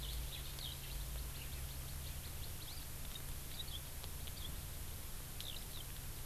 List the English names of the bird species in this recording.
Eurasian Skylark